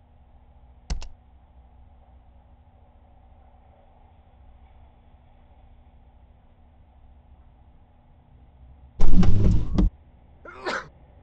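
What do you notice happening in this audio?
A faint constant noise runs in the background. At the start, typing is heard. Then, about 9 seconds in, the loud sound of a car can be heard. Finally, about 10 seconds in, someone sneezes.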